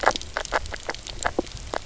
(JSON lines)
{"label": "biophony, knock croak", "recorder": "SoundTrap 300"}